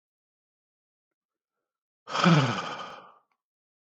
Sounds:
Sigh